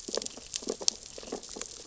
{"label": "biophony, sea urchins (Echinidae)", "recorder": "SoundTrap 600 or HydroMoth"}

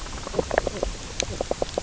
{"label": "biophony, knock croak", "recorder": "SoundTrap 300"}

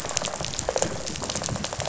{"label": "biophony, rattle response", "recorder": "SoundTrap 500"}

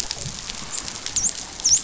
{"label": "biophony, dolphin", "recorder": "SoundTrap 500"}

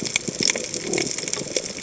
{"label": "biophony", "recorder": "HydroMoth"}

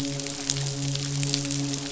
{"label": "biophony, midshipman", "recorder": "SoundTrap 500"}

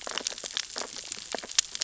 {"label": "biophony, sea urchins (Echinidae)", "recorder": "SoundTrap 600 or HydroMoth"}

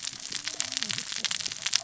{"label": "biophony, cascading saw", "recorder": "SoundTrap 600 or HydroMoth"}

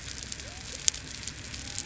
{"label": "biophony", "recorder": "SoundTrap 300"}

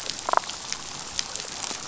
{"label": "biophony, damselfish", "recorder": "SoundTrap 500"}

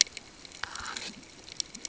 {"label": "ambient", "recorder": "HydroMoth"}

